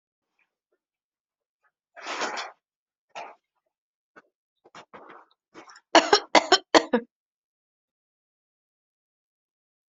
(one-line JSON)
{"expert_labels": [{"quality": "good", "cough_type": "dry", "dyspnea": false, "wheezing": false, "stridor": false, "choking": false, "congestion": false, "nothing": true, "diagnosis": "healthy cough", "severity": "pseudocough/healthy cough"}], "age": 30, "gender": "female", "respiratory_condition": false, "fever_muscle_pain": true, "status": "healthy"}